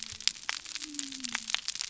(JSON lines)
{"label": "biophony", "recorder": "SoundTrap 300"}